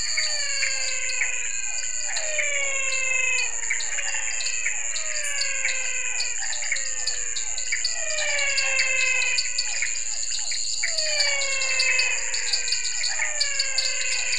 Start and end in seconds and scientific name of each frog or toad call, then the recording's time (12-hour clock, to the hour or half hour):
0.0	2.6	Elachistocleis matogrosso
0.0	14.3	Dendropsophus nanus
0.0	14.3	Leptodactylus podicipinus
0.0	14.3	Physalaemus albonotatus
0.0	14.3	Physalaemus cuvieri
0.0	14.3	Pithecopus azureus
9.6	11.4	Elachistocleis matogrosso
~7pm